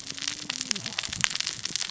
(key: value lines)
label: biophony, cascading saw
recorder: SoundTrap 600 or HydroMoth